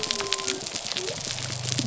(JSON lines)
{"label": "biophony", "recorder": "SoundTrap 300"}